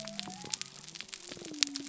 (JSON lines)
{"label": "biophony", "recorder": "SoundTrap 300"}